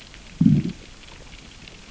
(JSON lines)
{"label": "biophony, growl", "recorder": "SoundTrap 600 or HydroMoth"}